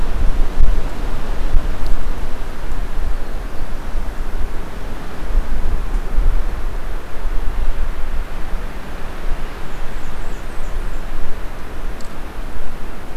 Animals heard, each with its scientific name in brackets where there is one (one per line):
Blackburnian Warbler (Setophaga fusca)